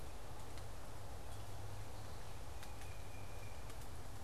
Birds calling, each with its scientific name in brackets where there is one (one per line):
Tufted Titmouse (Baeolophus bicolor)